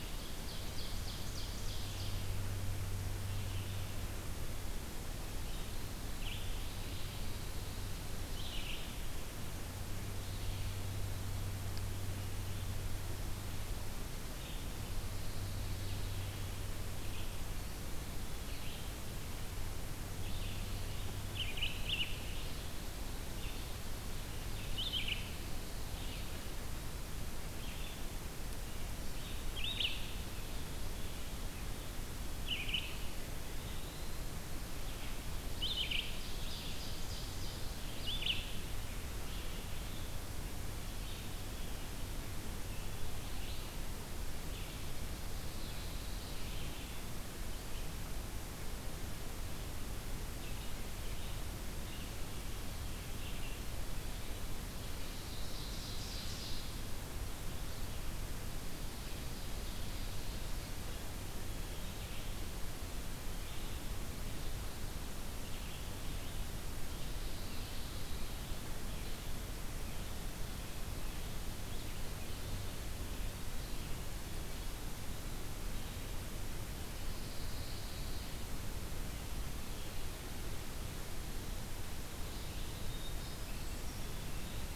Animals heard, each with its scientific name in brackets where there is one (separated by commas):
Eastern Wood-Pewee (Contopus virens), Pine Warbler (Setophaga pinus), Brown Creeper (Certhia americana), Ovenbird (Seiurus aurocapilla), Red-eyed Vireo (Vireo olivaceus)